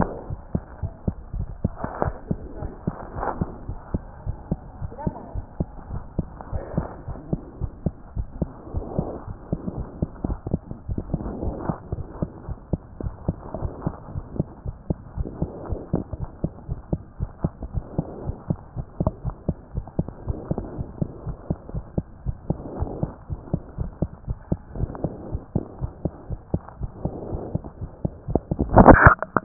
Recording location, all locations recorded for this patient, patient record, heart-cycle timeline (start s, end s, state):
aortic valve (AV)
aortic valve (AV)+pulmonary valve (PV)+tricuspid valve (TV)+mitral valve (MV)
#Age: Child
#Sex: Male
#Height: 93.0 cm
#Weight: 14.8 kg
#Pregnancy status: False
#Murmur: Absent
#Murmur locations: nan
#Most audible location: nan
#Systolic murmur timing: nan
#Systolic murmur shape: nan
#Systolic murmur grading: nan
#Systolic murmur pitch: nan
#Systolic murmur quality: nan
#Diastolic murmur timing: nan
#Diastolic murmur shape: nan
#Diastolic murmur grading: nan
#Diastolic murmur pitch: nan
#Diastolic murmur quality: nan
#Outcome: Abnormal
#Campaign: 2014 screening campaign
0.00	0.12	S2
0.12	0.28	diastole
0.28	0.40	S1
0.40	0.52	systole
0.52	0.62	S2
0.62	0.82	diastole
0.82	0.92	S1
0.92	1.06	systole
1.06	1.16	S2
1.16	1.34	diastole
1.34	1.48	S1
1.48	1.62	systole
1.62	1.78	S2
1.78	2.00	diastole
2.00	2.16	S1
2.16	2.28	systole
2.28	2.42	S2
2.42	2.60	diastole
2.60	2.72	S1
2.72	2.86	systole
2.86	2.96	S2
2.96	3.16	diastole
3.16	3.28	S1
3.28	3.40	systole
3.40	3.50	S2
3.50	3.66	diastole
3.66	3.80	S1
3.80	3.92	systole
3.92	4.02	S2
4.02	4.24	diastole
4.24	4.38	S1
4.38	4.50	systole
4.50	4.60	S2
4.60	4.80	diastole
4.80	4.92	S1
4.92	5.04	systole
5.04	5.14	S2
5.14	5.32	diastole
5.32	5.46	S1
5.46	5.58	systole
5.58	5.68	S2
5.68	5.90	diastole
5.90	6.04	S1
6.04	6.16	systole
6.16	6.30	S2
6.30	6.50	diastole
6.50	6.64	S1
6.64	6.76	systole
6.76	6.88	S2
6.88	7.06	diastole
7.06	7.18	S1
7.18	7.30	systole
7.30	7.40	S2
7.40	7.58	diastole
7.58	7.72	S1
7.72	7.84	systole
7.84	7.94	S2
7.94	8.14	diastole
8.14	8.28	S1
8.28	8.40	systole
8.40	8.50	S2
8.50	8.72	diastole
8.72	8.84	S1
8.84	8.96	systole
8.96	9.06	S2
9.06	9.26	diastole
9.26	9.38	S1
9.38	9.50	systole
9.50	9.60	S2
9.60	9.76	diastole
9.76	9.88	S1
9.88	10.00	systole
10.00	10.10	S2
10.10	10.28	diastole
10.28	10.40	S1
10.40	10.52	systole
10.52	10.62	S2
10.62	10.82	diastole
10.82	10.96	S1
10.96	11.08	systole
11.08	11.22	S2
11.22	11.42	diastole
11.42	11.56	S1
11.56	11.66	systole
11.66	11.76	S2
11.76	11.92	diastole
11.92	12.06	S1
12.06	12.20	systole
12.20	12.30	S2
12.30	12.46	diastole
12.46	12.56	S1
12.56	12.72	systole
12.72	12.82	S2
12.82	13.04	diastole
13.04	13.16	S1
13.16	13.26	systole
13.26	13.40	S2
13.40	13.60	diastole
13.60	13.74	S1
13.74	13.84	systole
13.84	13.94	S2
13.94	14.12	diastole
14.12	14.26	S1
14.26	14.38	systole
14.38	14.48	S2
14.48	14.64	diastole
14.64	14.76	S1
14.76	14.88	systole
14.88	14.98	S2
14.98	15.16	diastole
15.16	15.28	S1
15.28	15.40	systole
15.40	15.50	S2
15.50	15.68	diastole
15.68	15.80	S1
15.80	15.92	systole
15.92	16.04	S2
16.04	16.22	diastole
16.22	16.32	S1
16.32	16.42	systole
16.42	16.52	S2
16.52	16.70	diastole
16.70	16.80	S1
16.80	16.92	systole
16.92	17.02	S2
17.02	17.22	diastole
17.22	17.32	S1
17.32	17.42	systole
17.42	17.52	S2
17.52	17.72	diastole
17.72	17.86	S1
17.86	17.96	systole
17.96	18.06	S2
18.06	18.24	diastole
18.24	18.36	S1
18.36	18.48	systole
18.48	18.58	S2
18.58	18.76	diastole
18.76	18.86	S1
18.86	18.98	systole
18.98	19.08	S2
19.08	19.24	diastole
19.24	19.36	S1
19.36	19.46	systole
19.46	19.56	S2
19.56	19.76	diastole
19.76	19.86	S1
19.86	19.98	systole
19.98	20.06	S2
20.06	20.24	diastole
20.24	20.38	S1
20.38	20.48	systole
20.48	20.58	S2
20.58	20.76	diastole
20.76	20.88	S1
20.88	21.00	systole
21.00	21.10	S2
21.10	21.28	diastole
21.28	21.38	S1
21.38	21.48	systole
21.48	21.58	S2
21.58	21.76	diastole
21.76	21.86	S1
21.86	21.96	systole
21.96	22.06	S2
22.06	22.24	diastole
22.24	22.38	S1
22.38	22.48	systole
22.48	22.58	S2
22.58	22.76	diastole
22.76	22.90	S1
22.90	23.00	systole
23.00	23.12	S2
23.12	23.32	diastole
23.32	23.42	S1
23.42	23.52	systole
23.52	23.62	S2
23.62	23.80	diastole
23.80	23.92	S1
23.92	24.00	systole
24.00	24.10	S2
24.10	24.26	diastole
24.26	24.36	S1
24.36	24.48	systole
24.48	24.60	S2
24.60	24.78	diastole
24.78	24.92	S1
24.92	25.02	systole
25.02	25.14	S2
25.14	25.30	diastole
25.30	25.42	S1
25.42	25.54	systole
25.54	25.64	S2
25.64	25.80	diastole
25.80	25.90	S1
25.90	26.02	systole
26.02	26.12	S2
26.12	26.28	diastole
26.28	26.40	S1
26.40	26.52	systole
26.52	26.62	S2
26.62	26.80	diastole
26.80	26.92	S1
26.92	27.04	systole
27.04	27.14	S2
27.14	27.30	diastole
27.30	27.42	S1
27.42	27.52	systole
27.52	27.62	S2
27.62	27.80	diastole
27.80	27.90	S1
27.90	28.00	systole
28.00	28.12	S2
28.12	28.30	diastole
28.30	28.42	S1
28.42	28.50	systole
28.50	28.60	S2
28.60	28.80	diastole
28.80	28.98	S1
28.98	29.04	systole
29.04	29.20	S2
29.20	29.36	diastole
29.36	29.44	S1